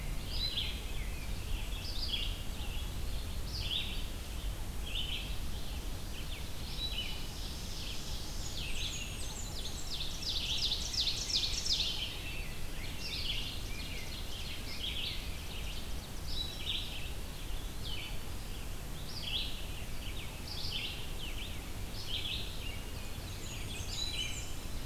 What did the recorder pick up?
Rose-breasted Grosbeak, Red-eyed Vireo, Ovenbird, Blackburnian Warbler, Eastern Wood-Pewee, Winter Wren